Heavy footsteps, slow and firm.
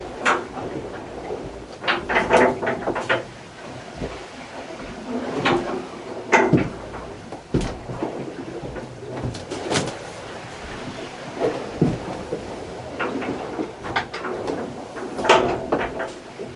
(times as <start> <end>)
6.4 12.2